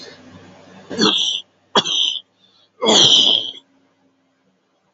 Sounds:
Throat clearing